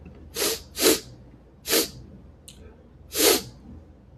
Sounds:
Sniff